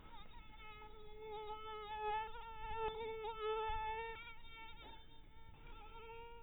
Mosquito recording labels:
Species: mosquito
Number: one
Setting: cup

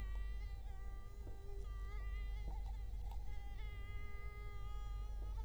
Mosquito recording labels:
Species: Culex quinquefasciatus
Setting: cup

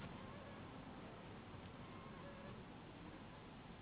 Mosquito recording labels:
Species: Anopheles gambiae s.s.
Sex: female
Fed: unfed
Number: one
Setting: insect culture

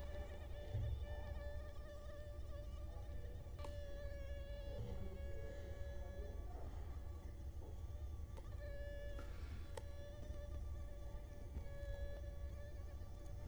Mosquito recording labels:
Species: Culex quinquefasciatus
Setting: cup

